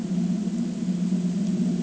{"label": "ambient", "recorder": "HydroMoth"}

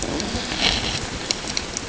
{"label": "ambient", "recorder": "HydroMoth"}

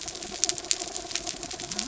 {"label": "biophony", "recorder": "SoundTrap 300"}
{"label": "anthrophony, mechanical", "recorder": "SoundTrap 300"}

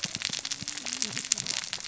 {"label": "biophony, cascading saw", "recorder": "SoundTrap 600 or HydroMoth"}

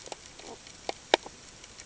{"label": "ambient", "recorder": "HydroMoth"}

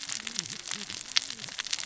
{"label": "biophony, cascading saw", "recorder": "SoundTrap 600 or HydroMoth"}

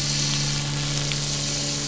{"label": "anthrophony, boat engine", "recorder": "SoundTrap 500"}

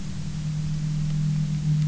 {"label": "anthrophony, boat engine", "recorder": "SoundTrap 300"}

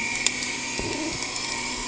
{"label": "anthrophony, boat engine", "recorder": "HydroMoth"}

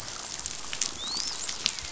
{"label": "biophony, dolphin", "recorder": "SoundTrap 500"}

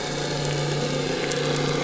{"label": "biophony", "recorder": "SoundTrap 300"}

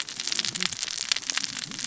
{"label": "biophony, cascading saw", "recorder": "SoundTrap 600 or HydroMoth"}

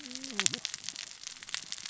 {"label": "biophony, cascading saw", "recorder": "SoundTrap 600 or HydroMoth"}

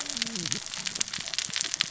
{"label": "biophony, cascading saw", "recorder": "SoundTrap 600 or HydroMoth"}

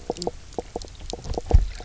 {"label": "biophony, knock croak", "recorder": "SoundTrap 300"}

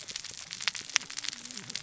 {"label": "biophony, cascading saw", "recorder": "SoundTrap 600 or HydroMoth"}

